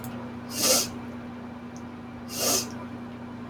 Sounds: Sniff